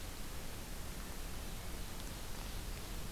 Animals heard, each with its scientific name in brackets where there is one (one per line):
Ovenbird (Seiurus aurocapilla)